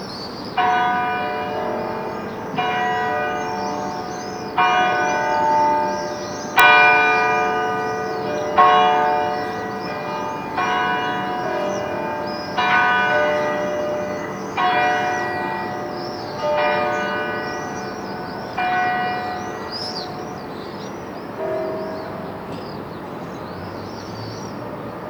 What type of building was the recording made at?
church